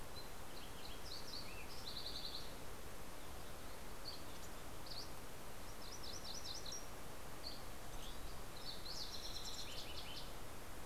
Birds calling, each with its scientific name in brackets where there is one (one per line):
MacGillivray's Warbler (Geothlypis tolmiei)
Dusky Flycatcher (Empidonax oberholseri)
Lincoln's Sparrow (Melospiza lincolnii)